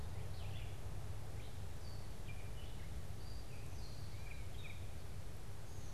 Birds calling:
Red-eyed Vireo (Vireo olivaceus), Gray Catbird (Dumetella carolinensis)

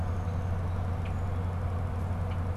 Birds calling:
Downy Woodpecker (Dryobates pubescens), Red-winged Blackbird (Agelaius phoeniceus)

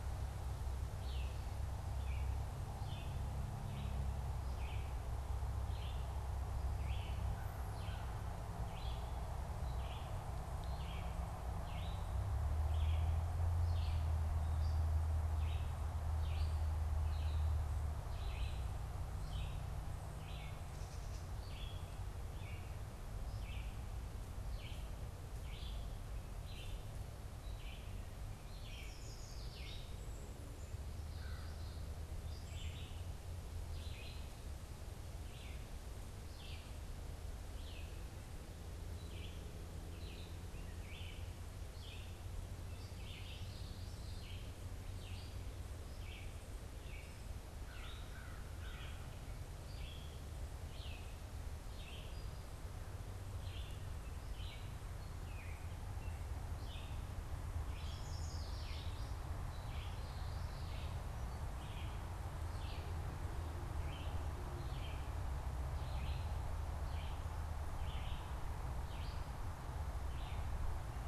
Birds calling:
Yellow Warbler (Setophaga petechia), Red-eyed Vireo (Vireo olivaceus), Cedar Waxwing (Bombycilla cedrorum), Common Yellowthroat (Geothlypis trichas)

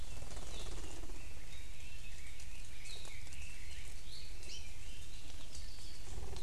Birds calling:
Warbling White-eye (Zosterops japonicus), Red-billed Leiothrix (Leiothrix lutea), Apapane (Himatione sanguinea), Hawaii Creeper (Loxops mana)

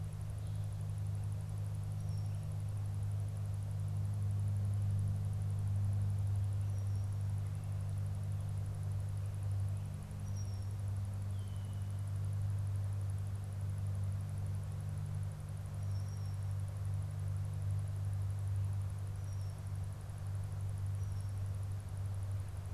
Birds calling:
Red-winged Blackbird (Agelaius phoeniceus)

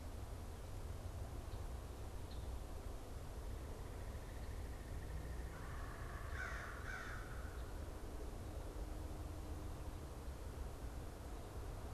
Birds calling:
Red-bellied Woodpecker (Melanerpes carolinus), American Crow (Corvus brachyrhynchos)

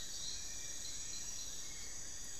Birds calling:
Black-billed Thrush (Turdus ignobilis), Long-billed Woodcreeper (Nasica longirostris), Little Tinamou (Crypturellus soui)

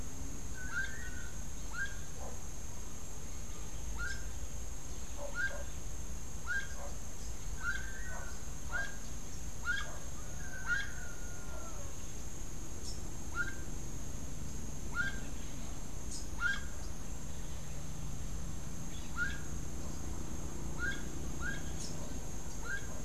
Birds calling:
Gray-headed Chachalaca (Ortalis cinereiceps), Rufous-capped Warbler (Basileuterus rufifrons), Long-tailed Manakin (Chiroxiphia linearis)

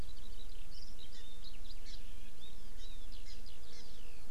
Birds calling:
Hawaii Amakihi (Chlorodrepanis virens), Warbling White-eye (Zosterops japonicus), Eurasian Skylark (Alauda arvensis)

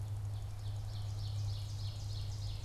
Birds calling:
Ovenbird (Seiurus aurocapilla)

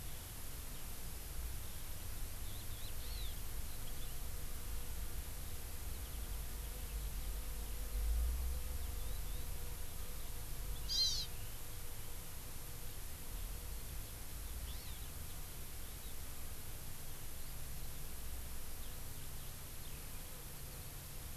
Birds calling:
Hawaii Amakihi (Chlorodrepanis virens), Warbling White-eye (Zosterops japonicus), Eurasian Skylark (Alauda arvensis)

